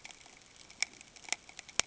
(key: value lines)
label: ambient
recorder: HydroMoth